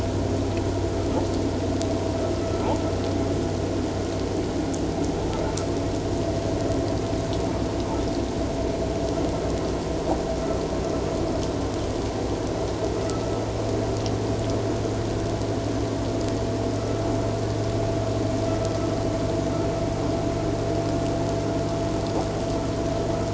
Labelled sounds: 2.4	2.7	vessel noise, 1.2 to 1.4 kHz
18.5	18.8	vessel noise, 1.3 to 1.4 kHz

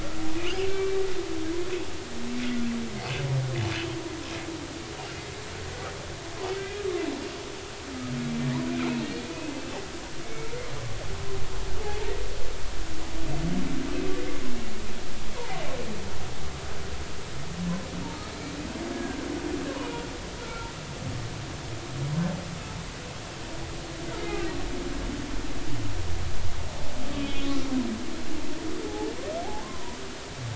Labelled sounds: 0.7	1.0	humpback whale, 2.3 to 2.4 kHz
6.6	6.8	humpback whale, 2.3 to 2.5 kHz
8.3	8.5	humpback whale, 2.3 to 2.4 kHz
9.2	9.5	humpback whale, 2.4 to 2.6 kHz
10.2	10.5	humpback whale, 2.2 to 2.3 kHz
15.4	15.6	humpback whale, 0.80 to 1.1 kHz
18.9	19.2	humpback whale, 1.5 to 1.8 kHz
20.4	20.7	humpback whale, 1.3 to 1.5 kHz
27.2	27.5	humpback whale, 3.0 to 3.6 kHz
29.6	30.0	humpback whale, 0.90 to 1.1 kHz

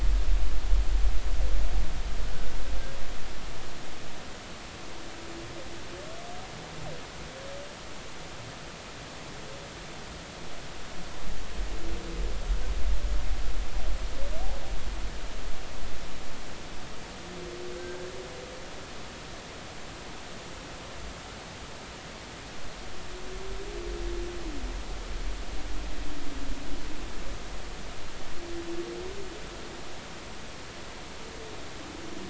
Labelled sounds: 17.8	18.1	humpback whale, 1.5 to 1.7 kHz

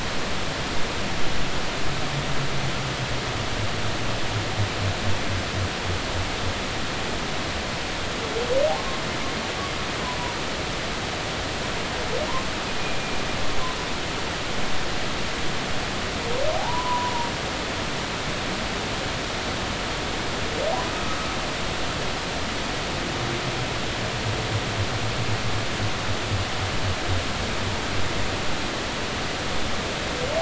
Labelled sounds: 12.8	13.2	humpback whale, 2.3 to 2.5 kHz
16.6	17.1	humpback whale, 0.80 to 1.1 kHz

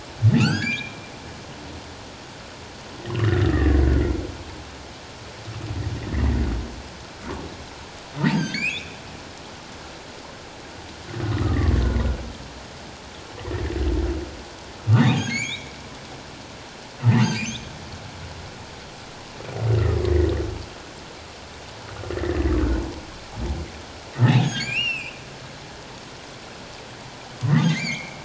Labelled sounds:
0.4	1.0	humpback whale, 1.2 to 5.1 kHz
3.2	3.8	humpback whale, 1.7 to 2.0 kHz
6.1	6.4	humpback whale, 1.7 to 2.2 kHz
8.3	9.0	humpback whale, 1.5 to 6.6 kHz
11.3	11.8	humpback whale, 1.1 to 1.3 kHz
15.2	15.7	humpback whale, 1.5 to 7.1 kHz
17.0	17.7	humpback whale, 1.7 to 4.9 kHz
20.0	20.3	humpback whale, 1.8 to 2.2 kHz
22.1	22.4	humpback whale, 1.7 to 2.0 kHz
24.3	25.1	humpback whale, 1.5 to 7.6 kHz
27.6	28.2	humpback whale, 1.5 to 7.1 kHz

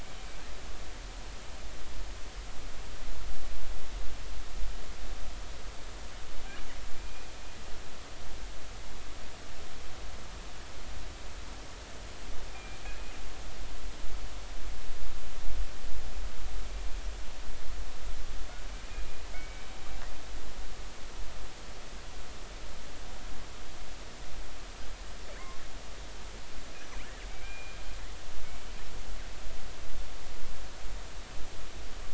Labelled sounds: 7.0	7.2	killer whale, northern resident, G clan, 2.3 to 2.5 kHz
12.5	12.8	killer whale, northern resident, G clan, 2.3 to 2.5 kHz
18.9	19.7	killer whale, northern resident, G clan, 2.0 to 2.5 kHz
27.3	27.8	killer whale, northern resident, G clan, 2.2 to 2.5 kHz

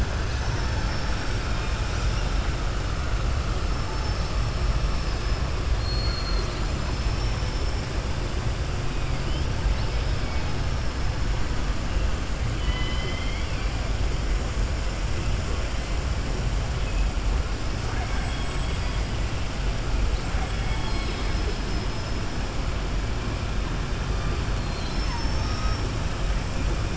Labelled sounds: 0.8	1.4	killer whale, southern resident, 4.7 to 5.9 kHz
4.9	5.4	killer whale, southern resident, 4.5 to 5.5 kHz
5.7	6.6	killer whale, southern resident, 3.6 to 6.7 kHz
12.5	13.7	killer whale, southern resident, 1.0 to 5.1 kHz
17.8	18.5	killer whale, southern resident, 0.70 to 3.7 kHz
20.3	21.4	killer whale, southern resident, 1.1 to 5.2 kHz
24.5	25.9	killer whale, southern resident, 3.2 to 6.4 kHz

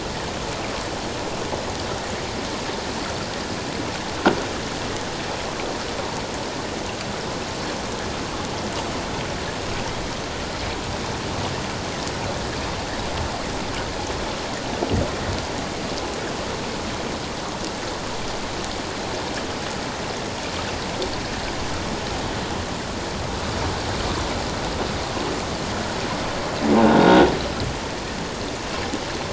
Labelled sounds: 27.0	27.3	croaking sound likely from a nearby submerged object, 1.4 to 1.5 kHz

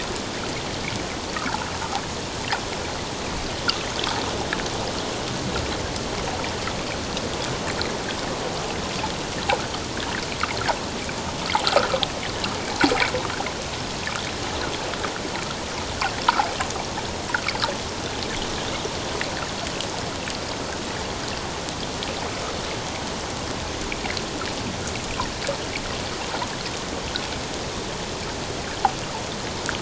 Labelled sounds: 1.3	1.6	water noise, 1.2 to 1.8 kHz

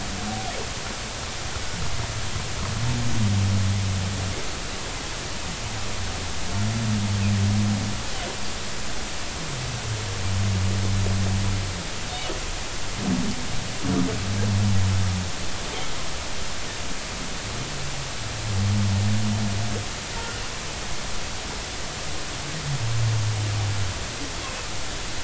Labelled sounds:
20.1	20.4	humpback whale, 1.3 to 1.5 kHz

